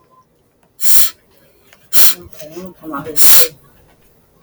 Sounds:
Sniff